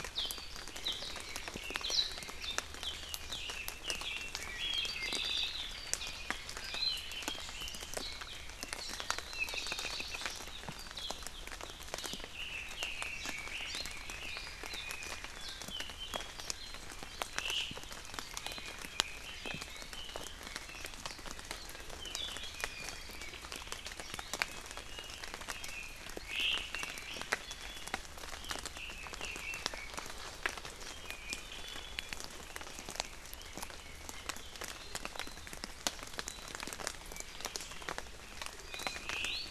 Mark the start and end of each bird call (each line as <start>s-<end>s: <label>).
3.2s-4.9s: Red-billed Leiothrix (Leiothrix lutea)
4.9s-5.5s: Apapane (Himatione sanguinea)
6.7s-7.8s: Red-billed Leiothrix (Leiothrix lutea)
9.3s-10.2s: Apapane (Himatione sanguinea)
12.3s-14.4s: Red-billed Leiothrix (Leiothrix lutea)
17.4s-17.7s: Omao (Myadestes obscurus)
18.4s-20.2s: Red-billed Leiothrix (Leiothrix lutea)
22.5s-22.9s: Iiwi (Drepanis coccinea)
26.2s-26.6s: Omao (Myadestes obscurus)
27.4s-28.0s: Iiwi (Drepanis coccinea)
28.7s-29.9s: Red-billed Leiothrix (Leiothrix lutea)
30.8s-32.2s: Iiwi (Drepanis coccinea)
38.6s-39.5s: Iiwi (Drepanis coccinea)
39.1s-39.4s: Omao (Myadestes obscurus)